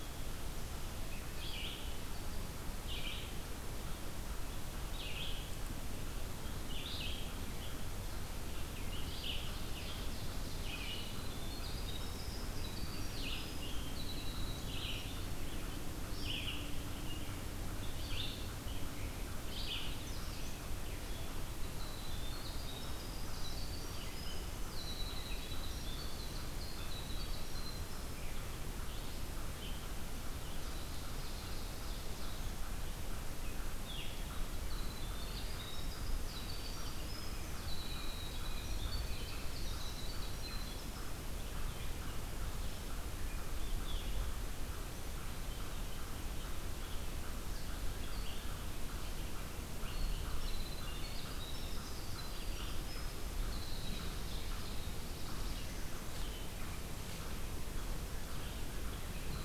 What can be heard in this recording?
Blue-headed Vireo, Ovenbird, American Crow, Winter Wren